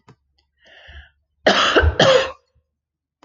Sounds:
Cough